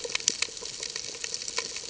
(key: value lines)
label: ambient
recorder: HydroMoth